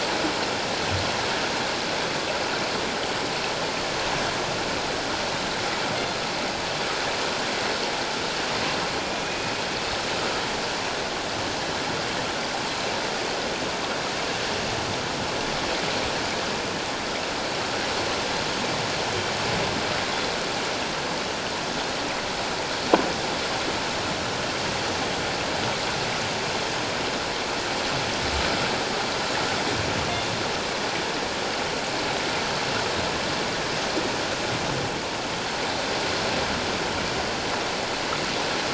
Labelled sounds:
9.2	9.5	killer whale, northern resident, G clan, 2.4 to 2.5 kHz

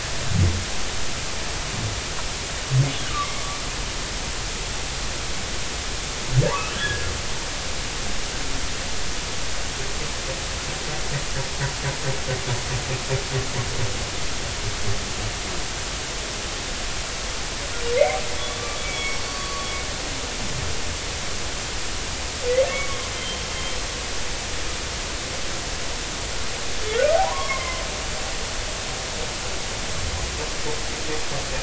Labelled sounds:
3.0	3.3	humpback whale, 0.99 to 1.7 kHz
6.5	7.1	humpback whale, 0.90 to 1.8 kHz
18.4	19.7	humpback whale, 1.0 to 5.6 kHz
22.7	23.4	humpback whale, 1.1 to 3.2 kHz
27.1	27.8	humpback whale, 0.80 to 2.2 kHz

